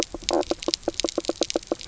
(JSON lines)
{"label": "biophony, knock croak", "recorder": "SoundTrap 300"}